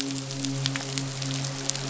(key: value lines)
label: biophony, midshipman
recorder: SoundTrap 500